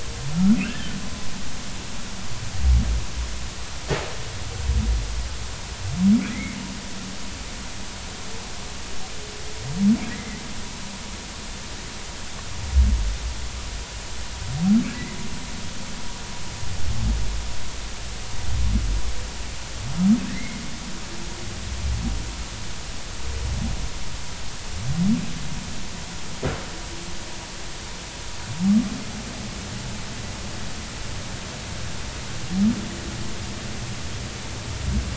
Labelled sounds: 0.3	1.0	humpback whale, 1.2 to 1.8 kHz
6.3	6.6	humpback whale, 1.8 to 2.4 kHz
10.1	10.4	humpback whale, 1.9 to 2.1 kHz
20.2	20.6	humpback whale, 1.6 to 2.2 kHz

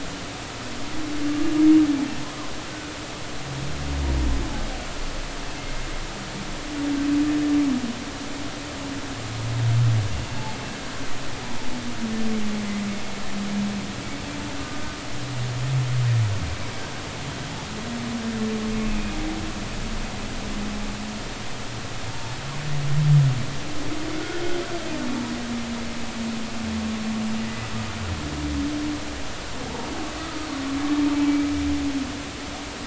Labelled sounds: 18.8	19.2	humpback whale, 2.3 to 2.7 kHz
22.1	22.4	humpback whale, 0.83 to 0.93 kHz
27.4	27.7	humpback whale, 1.9 to 2.0 kHz

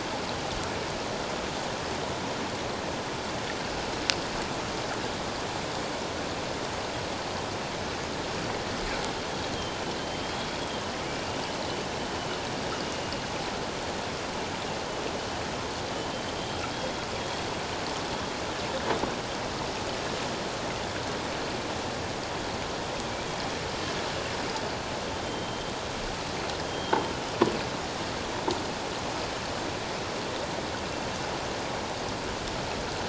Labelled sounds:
9.5	10.5	killer whale, 3.0 to 3.4 kHz
16.4	16.6	killer whale, 3.1 to 3.3 kHz
25.2	25.6	killer whale, 3.1 to 3.2 kHz
26.6	26.9	killer whale, 3.1 to 3.2 kHz

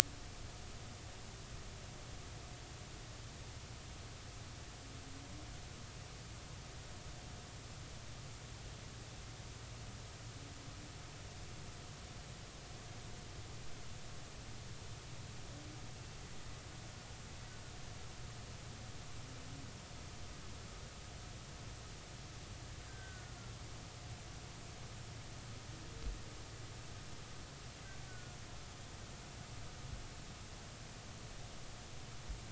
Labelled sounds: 22.9	23.4	killer whale, Bigg's (transient), 1.4 to 1.7 kHz
28.1	28.4	killer whale, Bigg's (transient), 1.4 to 1.5 kHz

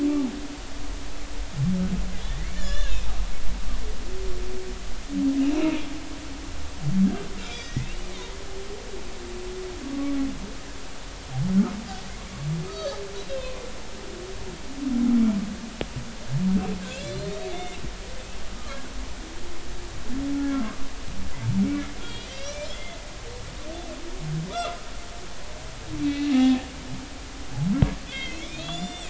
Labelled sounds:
2.2	3.1	humpback whale, 1.1 to 4.2 kHz
5.4	5.9	humpback whale, 2.4 to 2.9 kHz
7.4	8.1	humpback whale, 1.8 to 3.9 kHz
12.7	13.6	humpback whale, 1.2 to 4.6 kHz
16.8	17.8	humpback whale, 1.5 to 4.5 kHz
18.5	18.8	humpback whale, 1.1 to 1.3 kHz
20.4	20.7	humpback whale, 1.3 to 1.4 kHz
21.6	23.0	humpback whale, 1.9 to 6.0 kHz
24.5	24.8	humpback whale, 1.1 to 1.5 kHz
26.0	26.7	humpback whale, 0.80 to 2.4 kHz
28.1	29.0	humpback whale, 2.0 to 7.9 kHz

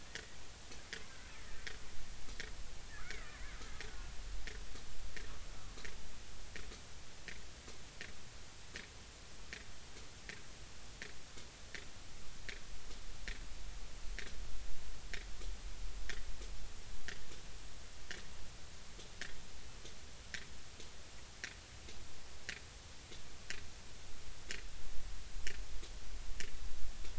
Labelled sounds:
0.0	0.2	killer whale, Bigg's (transient), 1.4 to 2.0 kHz
3.0	4.1	killer whale, Bigg's (transient), 1.4 to 2.3 kHz

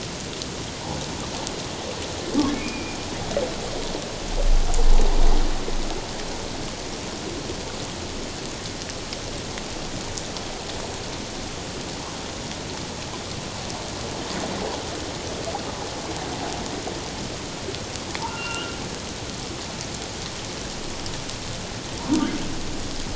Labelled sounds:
2.5	3.0	humpback whale, 2.2 to 2.6 kHz
18.3	18.8	humpback whale, 1.3 to 3.0 kHz

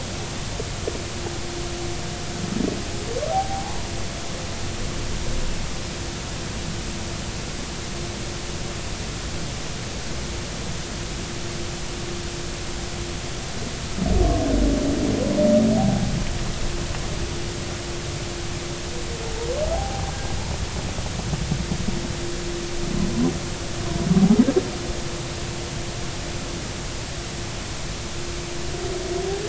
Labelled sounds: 3.3	3.9	humpback whale, 0.80 to 1.1 kHz
15.8	16.1	humpback whale, 0.80 to 0.86 kHz
19.7	20.1	humpback whale, 0.80 to 0.86 kHz

